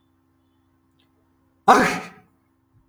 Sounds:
Sneeze